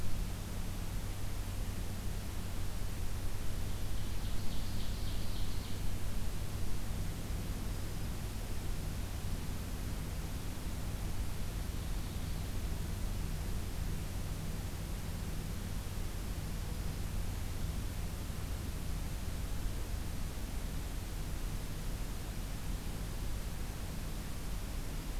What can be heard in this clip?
Ovenbird, Black-throated Green Warbler